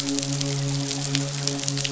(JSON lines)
{"label": "biophony, midshipman", "recorder": "SoundTrap 500"}